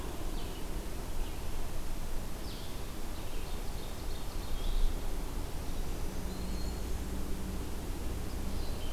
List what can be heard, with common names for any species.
Red-eyed Vireo, Ovenbird, Black-throated Green Warbler